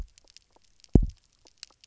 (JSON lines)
{"label": "biophony, double pulse", "recorder": "SoundTrap 300"}